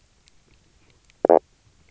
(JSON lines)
{"label": "biophony, knock croak", "recorder": "SoundTrap 300"}